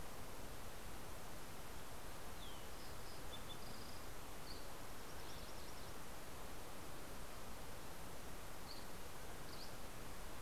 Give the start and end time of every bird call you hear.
1.9s-5.4s: Fox Sparrow (Passerella iliaca)
8.0s-10.4s: Dusky Flycatcher (Empidonax oberholseri)

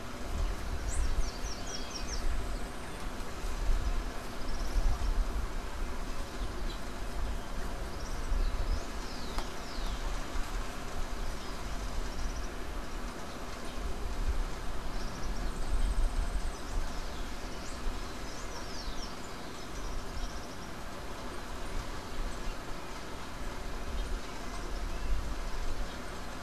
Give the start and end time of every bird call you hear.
0.6s-2.7s: Slate-throated Redstart (Myioborus miniatus)
4.2s-5.3s: Common Tody-Flycatcher (Todirostrum cinereum)
8.2s-10.3s: Rufous-collared Sparrow (Zonotrichia capensis)
11.8s-12.6s: Common Tody-Flycatcher (Todirostrum cinereum)
14.6s-15.6s: Common Tody-Flycatcher (Todirostrum cinereum)
15.4s-16.8s: Yellow-faced Grassquit (Tiaris olivaceus)
17.9s-19.4s: Rufous-collared Sparrow (Zonotrichia capensis)
19.6s-20.8s: Common Tody-Flycatcher (Todirostrum cinereum)

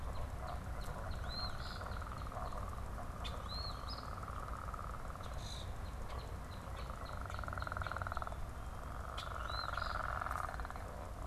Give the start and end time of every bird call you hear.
0.0s-2.7s: Northern Cardinal (Cardinalis cardinalis)
1.1s-1.9s: Eastern Phoebe (Sayornis phoebe)
3.1s-3.4s: unidentified bird
3.4s-4.1s: Eastern Phoebe (Sayornis phoebe)
5.1s-8.3s: Northern Cardinal (Cardinalis cardinalis)
9.1s-9.3s: unidentified bird
9.4s-10.0s: Eastern Phoebe (Sayornis phoebe)

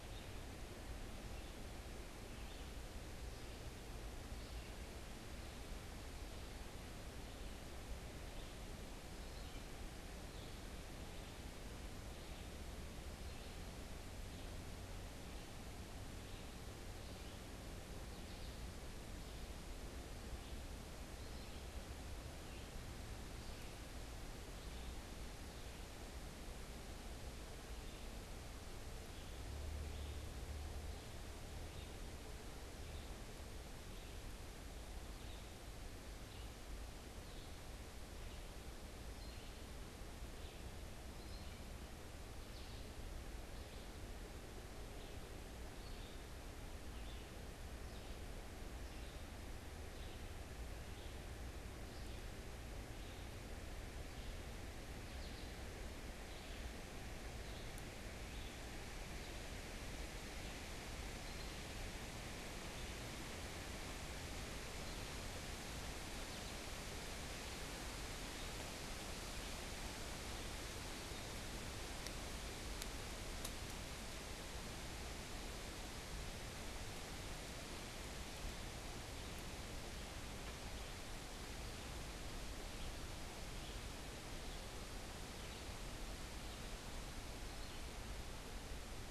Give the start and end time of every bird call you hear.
0.0s-50.4s: Red-eyed Vireo (Vireo olivaceus)
50.8s-63.2s: Red-eyed Vireo (Vireo olivaceus)
64.3s-67.8s: American Goldfinch (Spinus tristis)
81.5s-89.1s: Red-eyed Vireo (Vireo olivaceus)
88.6s-89.1s: American Goldfinch (Spinus tristis)

